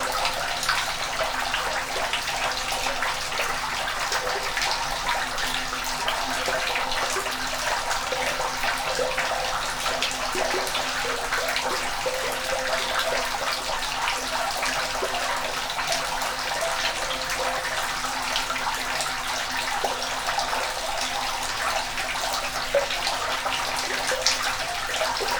Are there any animals making sounds?
no